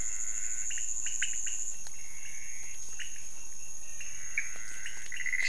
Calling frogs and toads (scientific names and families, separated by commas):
Leptodactylus podicipinus (Leptodactylidae), Pithecopus azureus (Hylidae), Physalaemus albonotatus (Leptodactylidae)